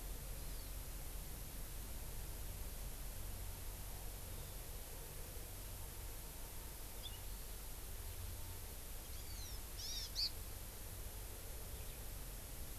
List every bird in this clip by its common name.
Hawaiian Hawk